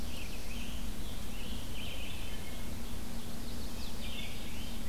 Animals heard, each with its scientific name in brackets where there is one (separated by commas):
Red-eyed Vireo (Vireo olivaceus), Wood Thrush (Hylocichla mustelina), Chestnut-sided Warbler (Setophaga pensylvanica), Rose-breasted Grosbeak (Pheucticus ludovicianus), Scarlet Tanager (Piranga olivacea), Black-throated Blue Warbler (Setophaga caerulescens)